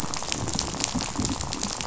{"label": "biophony, rattle", "recorder": "SoundTrap 500"}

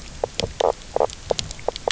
{"label": "biophony, knock croak", "recorder": "SoundTrap 300"}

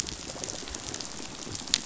{"label": "biophony, rattle response", "recorder": "SoundTrap 500"}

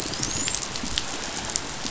{"label": "biophony, dolphin", "recorder": "SoundTrap 500"}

